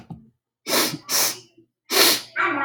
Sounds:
Sniff